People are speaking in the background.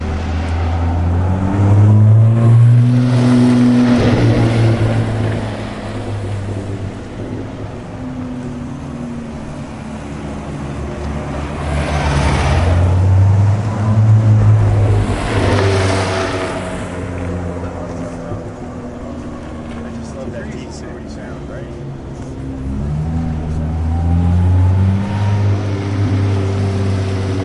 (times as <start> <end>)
19.6 23.6